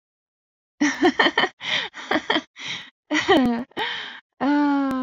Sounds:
Laughter